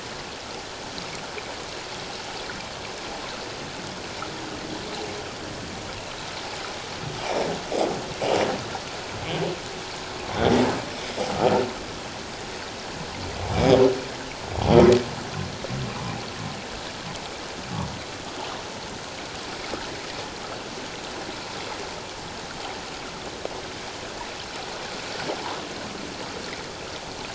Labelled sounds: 14.6	14.9	humpback whale, 3.0 to 3.3 kHz

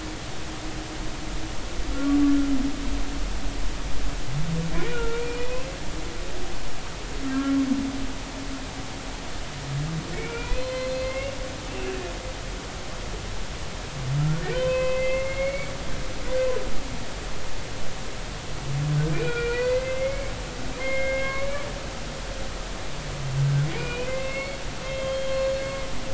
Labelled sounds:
4.7	5.7	humpback whale, 1.3 to 2.7 kHz
7.3	7.6	humpback whale, 1.3 to 1.4 kHz
10.1	12.0	humpback whale, 0.96 to 4.3 kHz
14.2	15.7	humpback whale, 0.96 to 4.5 kHz
19.1	20.3	humpback whale, 1.3 to 4.6 kHz
20.8	21.6	humpback whale, 1.0 to 2.4 kHz
23.8	25.3	humpback whale, 2.0 to 4.4 kHz

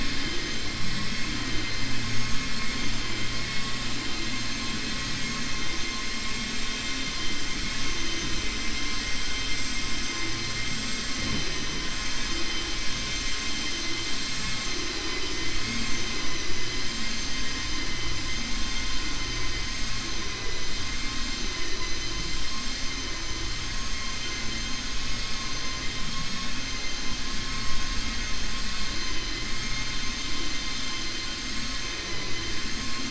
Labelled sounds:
15.5	16.6	vessel noise, 5.5 to 7.9 kHz

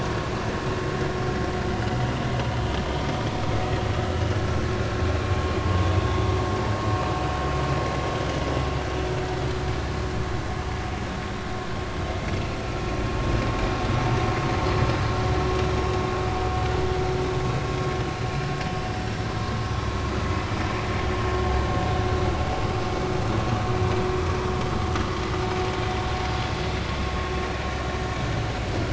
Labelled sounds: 20.2	20.5	vessel noise, 2.0 to 2.1 kHz

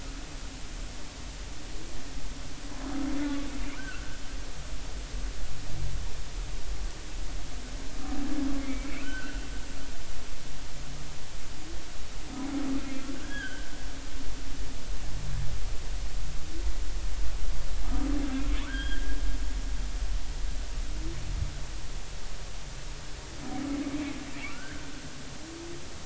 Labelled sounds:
3.8	4.1	humpback whale, 1.3 to 1.6 kHz
8.6	9.4	humpback whale, 1.3 to 3.2 kHz
13.2	13.7	humpback whale, 1.4 to 3.4 kHz
18.7	19.2	humpback whale, 1.3 to 3.4 kHz
23.9	24.9	humpback whale, 1.3 to 2.4 kHz

